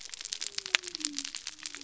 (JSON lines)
{"label": "biophony", "recorder": "SoundTrap 300"}